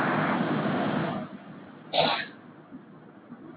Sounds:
Sneeze